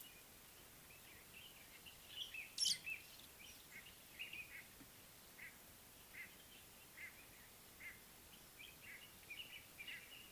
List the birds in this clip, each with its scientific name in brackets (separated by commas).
White-bellied Go-away-bird (Corythaixoides leucogaster), Brimstone Canary (Crithagra sulphurata)